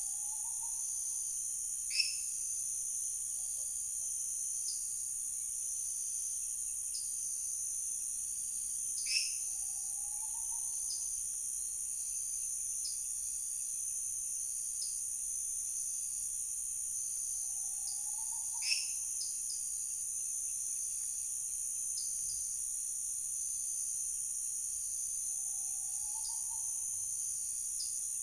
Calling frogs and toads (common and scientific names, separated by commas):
lesser tree frog (Dendropsophus minutus), dwarf tree frog (Dendropsophus nanus)